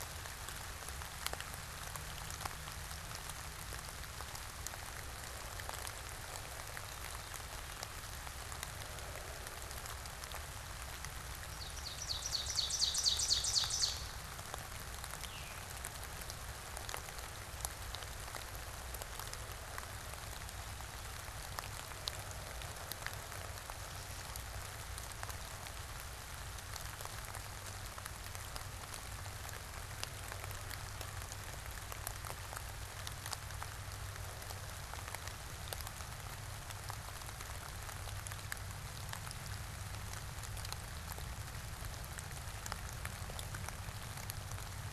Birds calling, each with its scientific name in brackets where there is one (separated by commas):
Ovenbird (Seiurus aurocapilla), Veery (Catharus fuscescens)